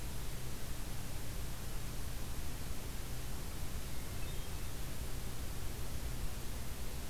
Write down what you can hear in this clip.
Hermit Thrush